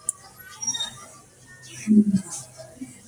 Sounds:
Sigh